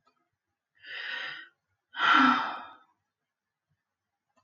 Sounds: Sigh